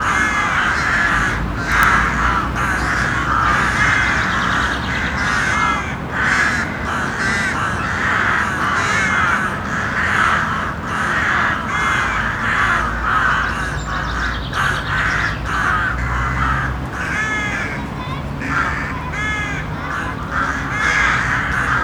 Are these humans?
no